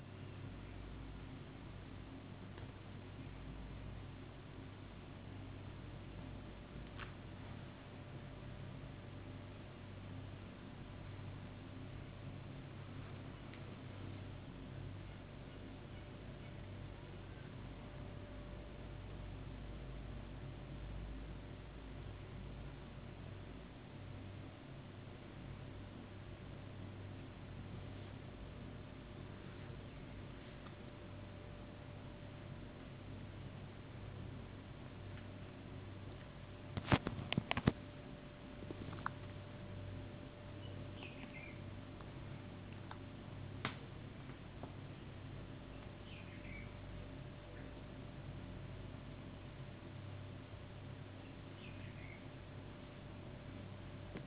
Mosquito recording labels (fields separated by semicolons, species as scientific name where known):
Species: no mosquito; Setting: insect culture